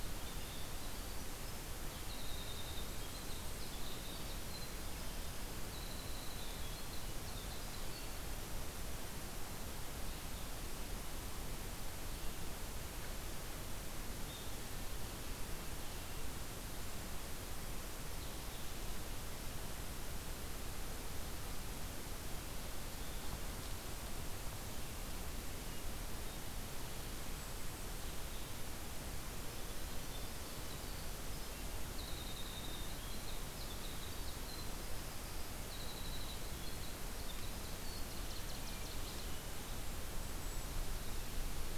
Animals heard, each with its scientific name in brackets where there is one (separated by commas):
Winter Wren (Troglodytes hiemalis), Golden-crowned Kinglet (Regulus satrapa), Northern Waterthrush (Parkesia noveboracensis)